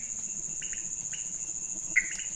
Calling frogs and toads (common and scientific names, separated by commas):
pointedbelly frog (Leptodactylus podicipinus), Pithecopus azureus